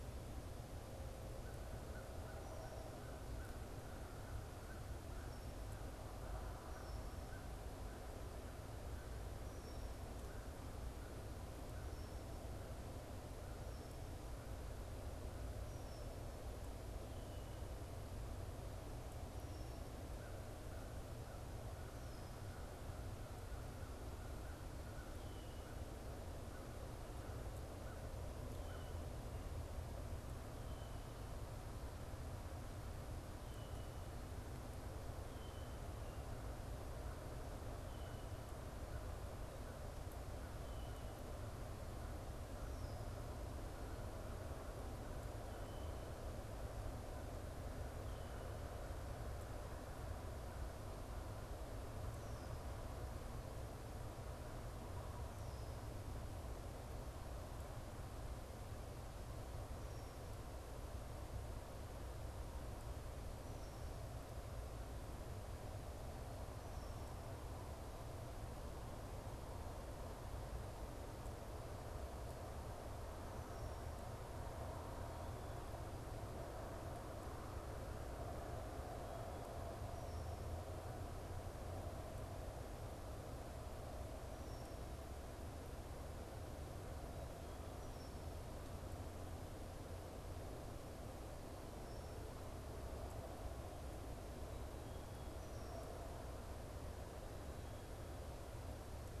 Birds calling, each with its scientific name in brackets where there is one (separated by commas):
American Crow (Corvus brachyrhynchos), unidentified bird, Red-winged Blackbird (Agelaius phoeniceus)